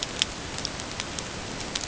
{"label": "ambient", "recorder": "HydroMoth"}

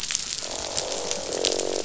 {"label": "biophony, croak", "recorder": "SoundTrap 500"}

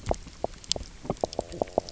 {"label": "biophony, knock croak", "recorder": "SoundTrap 300"}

